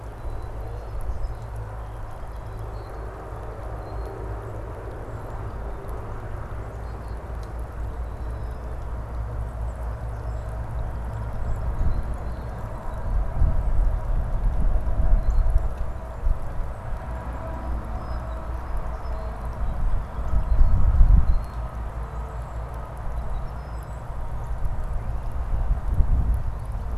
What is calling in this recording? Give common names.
Song Sparrow, Rusty Blackbird